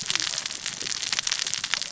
{"label": "biophony, cascading saw", "recorder": "SoundTrap 600 or HydroMoth"}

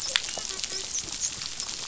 {"label": "biophony, dolphin", "recorder": "SoundTrap 500"}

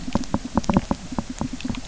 {"label": "biophony, knock", "recorder": "SoundTrap 300"}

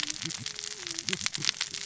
{"label": "biophony, cascading saw", "recorder": "SoundTrap 600 or HydroMoth"}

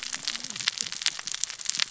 {"label": "biophony, cascading saw", "recorder": "SoundTrap 600 or HydroMoth"}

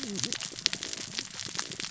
{"label": "biophony, cascading saw", "recorder": "SoundTrap 600 or HydroMoth"}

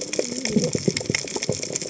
{"label": "biophony, cascading saw", "recorder": "HydroMoth"}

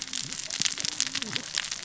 {"label": "biophony, cascading saw", "recorder": "SoundTrap 600 or HydroMoth"}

